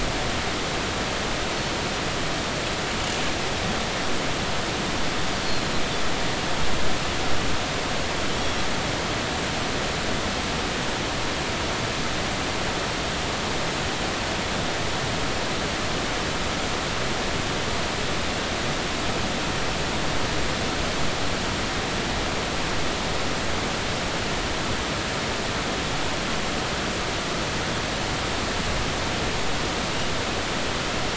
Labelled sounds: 5.4	5.7	Pacific white-sided dolphin, 4.0 to 4.5 kHz

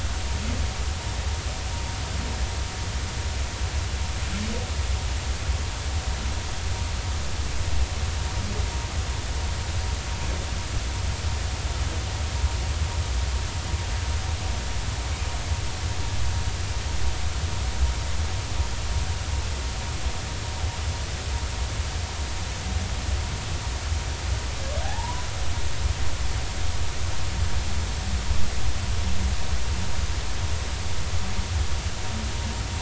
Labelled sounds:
24.8	25.2	humpback whale, 0.80 to 1.0 kHz

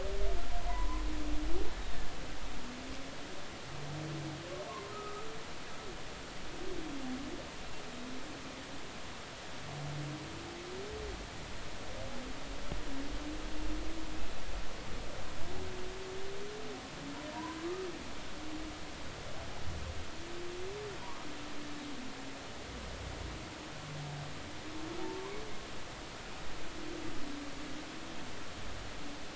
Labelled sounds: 0.7	1.0	humpback whale, 0.90 to 1.1 kHz
4.7	5.2	humpback whale, 0.93 to 1.3 kHz
25.0	25.3	humpback whale, 0.80 to 1.2 kHz

